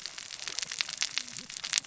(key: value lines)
label: biophony, cascading saw
recorder: SoundTrap 600 or HydroMoth